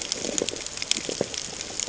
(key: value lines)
label: ambient
recorder: HydroMoth